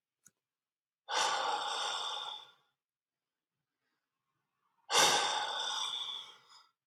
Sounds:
Sigh